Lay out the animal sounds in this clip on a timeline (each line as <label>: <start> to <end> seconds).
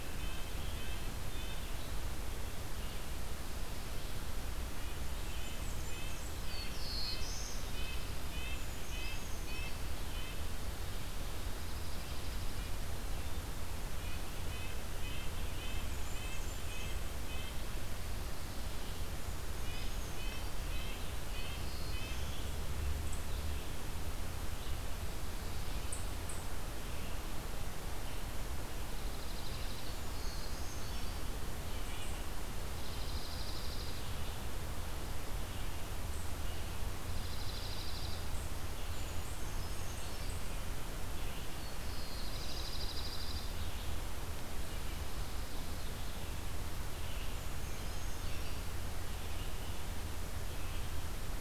Red-breasted Nuthatch (Sitta canadensis): 0.0 to 1.6 seconds
Red-eyed Vireo (Vireo olivaceus): 0.0 to 4.3 seconds
Red-breasted Nuthatch (Sitta canadensis): 4.5 to 10.5 seconds
Blackburnian Warbler (Setophaga fusca): 5.4 to 6.5 seconds
Black-throated Blue Warbler (Setophaga caerulescens): 6.3 to 7.8 seconds
Dark-eyed Junco (Junco hyemalis): 6.7 to 8.2 seconds
Brown Creeper (Certhia americana): 8.4 to 10.0 seconds
Dark-eyed Junco (Junco hyemalis): 11.4 to 12.6 seconds
Red-eyed Vireo (Vireo olivaceus): 12.9 to 51.4 seconds
Red-breasted Nuthatch (Sitta canadensis): 14.0 to 17.6 seconds
Blackburnian Warbler (Setophaga fusca): 15.4 to 17.2 seconds
Red-breasted Nuthatch (Sitta canadensis): 19.5 to 22.2 seconds
Black-throated Blue Warbler (Setophaga caerulescens): 21.0 to 22.5 seconds
Dark-eyed Junco (Junco hyemalis): 28.8 to 30.0 seconds
Brown Creeper (Certhia americana): 29.8 to 31.5 seconds
Dark-eyed Junco (Junco hyemalis): 32.6 to 34.1 seconds
Dark-eyed Junco (Junco hyemalis): 36.9 to 38.3 seconds
Brown Creeper (Certhia americana): 38.9 to 40.5 seconds
Black-throated Blue Warbler (Setophaga caerulescens): 41.3 to 42.8 seconds
Dark-eyed Junco (Junco hyemalis): 42.1 to 43.5 seconds
Brown Creeper (Certhia americana): 47.0 to 49.1 seconds